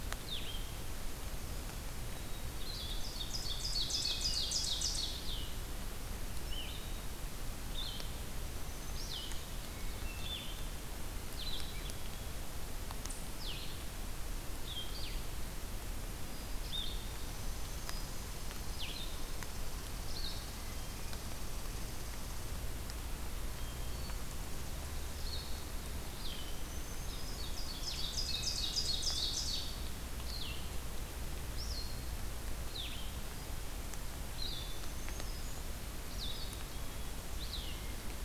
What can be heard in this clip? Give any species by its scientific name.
Vireo solitarius, Poecile atricapillus, Seiurus aurocapilla, Setophaga virens, Catharus guttatus, Tamiasciurus hudsonicus